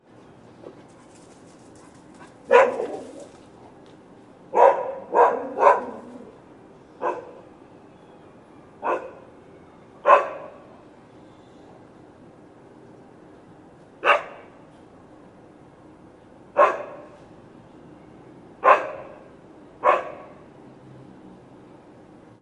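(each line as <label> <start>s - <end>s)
Dog claws scraping on hard ground. 0.8s - 3.5s
A dog is barking. 2.4s - 3.1s
A dog is barking. 4.5s - 6.0s
A dog is barking quietly. 7.0s - 7.2s
A dog is barking quietly. 8.8s - 9.1s
A dog is barking. 10.0s - 10.5s
A dog is barking. 14.0s - 14.4s
A dog is barking. 16.5s - 17.0s
A dog is barking. 18.6s - 19.1s
A dog is barking. 19.8s - 20.2s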